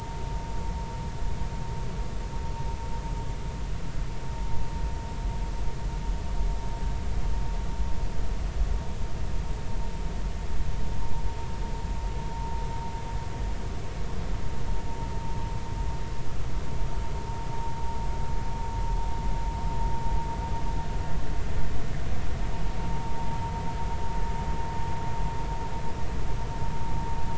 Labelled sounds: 22.8	23.1	vessel noise, 0.86 to 0.96 kHz

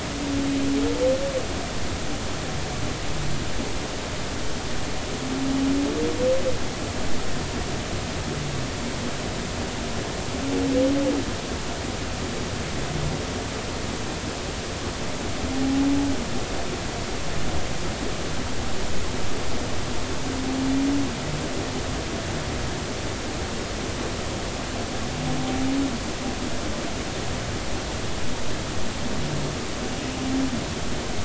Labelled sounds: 15.6	15.9	humpback whale, 0.80 to 0.93 kHz

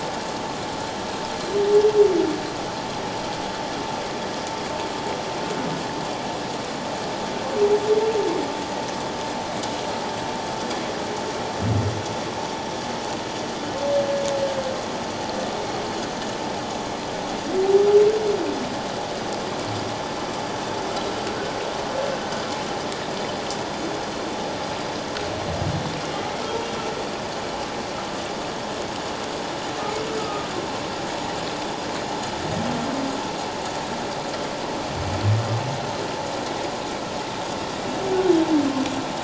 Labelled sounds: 30.2	30.5	humpback whale, 1.2 to 1.3 kHz

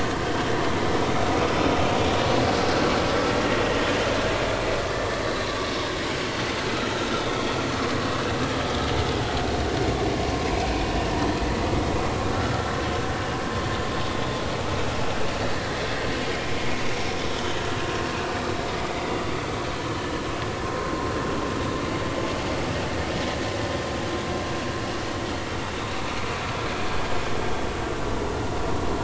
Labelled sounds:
10.3	10.6	vessel noise, 0.93 to 1.1 kHz
16.4	16.6	vessel noise, 2.3 to 2.5 kHz
20.8	21.1	vessel noise, 0.96 to 1.1 kHz

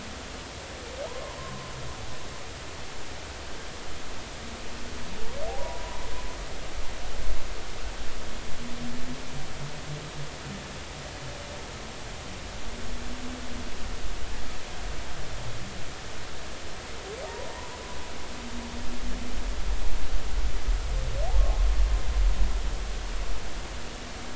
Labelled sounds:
1.0	1.7	humpback whale, 0.86 to 1.1 kHz
5.6	6.0	humpback whale, 0.90 to 1.0 kHz

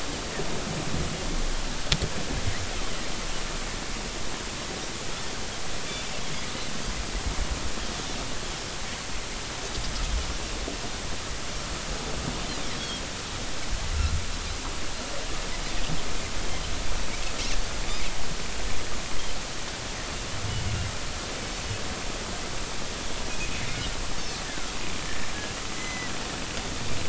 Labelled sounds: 24.5	24.7	Pacific white-sided dolphin, 1.2 to 1.8 kHz
25.8	26.1	Pacific white-sided dolphin, 1.9 to 6.1 kHz

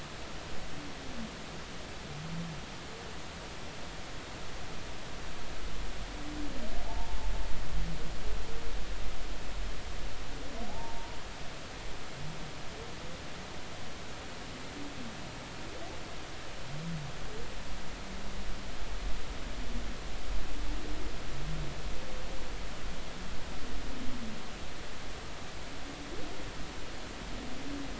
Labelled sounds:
6.9	7.2	humpback whale, 0.83 to 0.96 kHz
10.7	11.2	humpback whale, 0.80 to 0.99 kHz

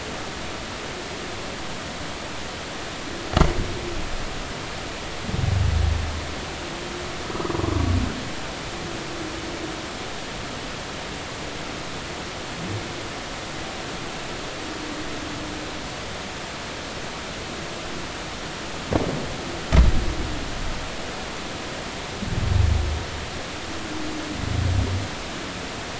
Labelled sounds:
3.2	3.5	humpback whale, 6.6 to 6.8 kHz

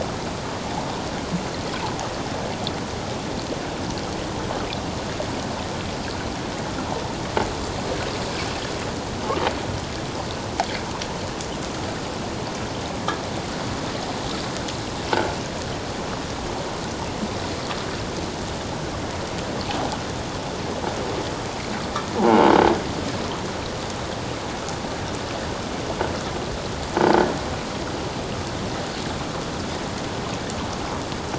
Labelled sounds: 22.2	22.5	croaking sound likely from a nearby submerged object, 0.78 to 1.0 kHz

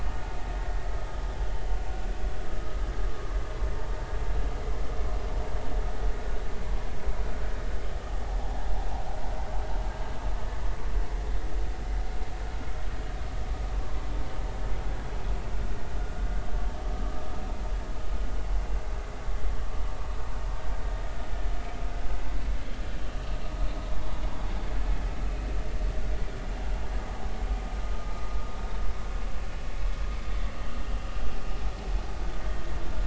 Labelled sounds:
1.9	2.8	vessel noise, 1.2 to 1.5 kHz
8.4	8.7	vessel noise, 0.80 to 0.96 kHz
24.0	24.3	vessel noise, 0.86 to 1.1 kHz

